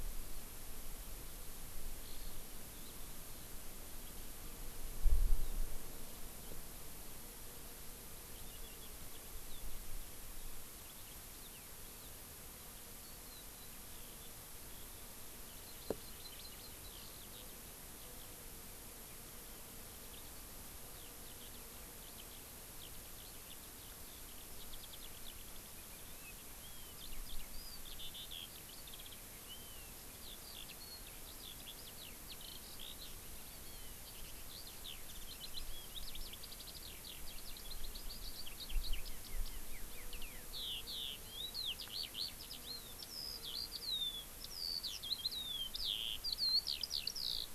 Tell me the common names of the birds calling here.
Eurasian Skylark, Hawaii Amakihi